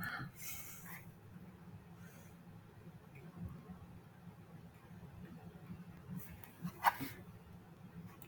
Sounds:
Laughter